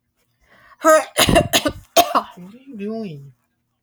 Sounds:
Throat clearing